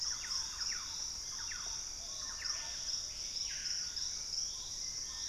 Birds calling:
Gray Antbird (Cercomacra cinerascens)
Plumbeous Pigeon (Patagioenas plumbea)
Screaming Piha (Lipaugus vociferans)
Thrush-like Wren (Campylorhynchus turdinus)

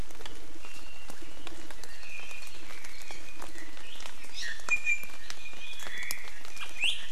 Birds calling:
Iiwi (Drepanis coccinea)

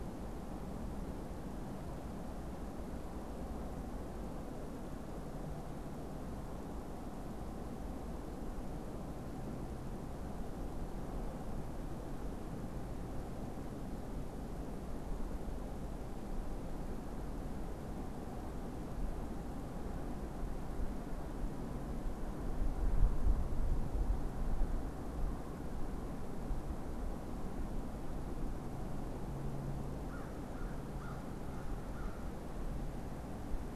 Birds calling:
American Crow (Corvus brachyrhynchos)

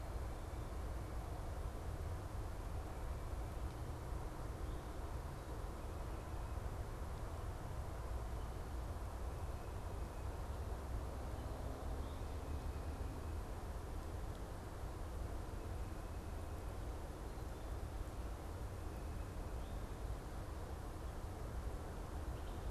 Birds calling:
Wood Thrush (Hylocichla mustelina)

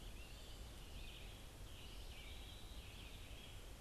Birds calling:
Eastern Wood-Pewee (Contopus virens)
Red-eyed Vireo (Vireo olivaceus)

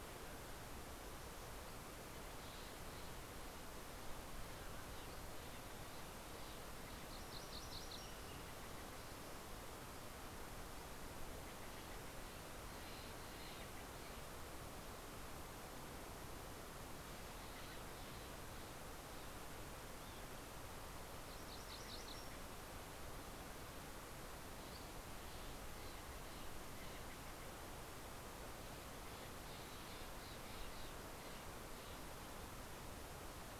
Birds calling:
Steller's Jay (Cyanocitta stelleri)
MacGillivray's Warbler (Geothlypis tolmiei)

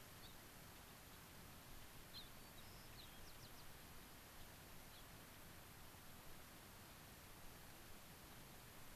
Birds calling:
White-crowned Sparrow (Zonotrichia leucophrys)
Gray-crowned Rosy-Finch (Leucosticte tephrocotis)

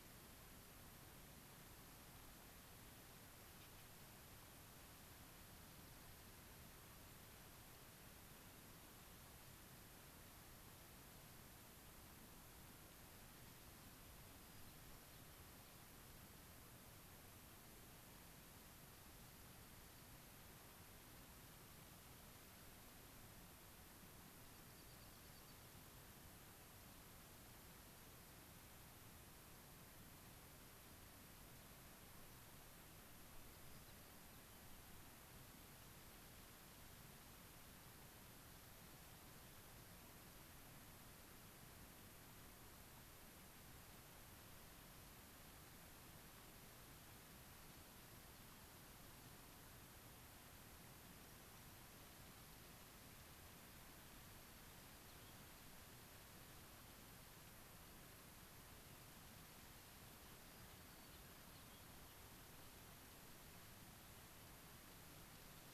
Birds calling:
White-crowned Sparrow (Zonotrichia leucophrys)
unidentified bird

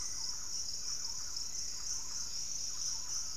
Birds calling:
Hauxwell's Thrush (Turdus hauxwelli)
Dusky-capped Greenlet (Pachysylvia hypoxantha)
Thrush-like Wren (Campylorhynchus turdinus)

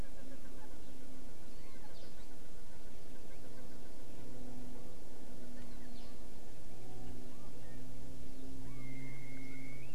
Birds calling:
Chinese Hwamei (Garrulax canorus)

